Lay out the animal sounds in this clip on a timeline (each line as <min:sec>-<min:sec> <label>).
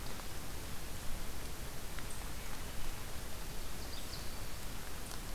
0:03.7-0:04.3 Ovenbird (Seiurus aurocapilla)